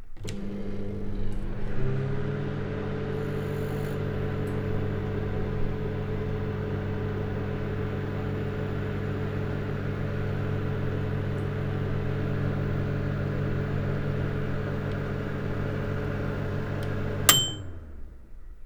Is there a machine making noise?
yes